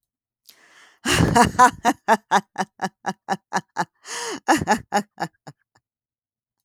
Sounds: Laughter